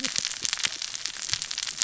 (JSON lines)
{"label": "biophony, cascading saw", "recorder": "SoundTrap 600 or HydroMoth"}